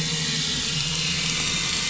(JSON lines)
{"label": "anthrophony, boat engine", "recorder": "SoundTrap 500"}